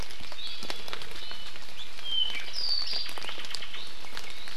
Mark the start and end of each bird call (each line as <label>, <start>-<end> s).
Iiwi (Drepanis coccinea), 0.4-1.0 s
Apapane (Himatione sanguinea), 2.0-3.3 s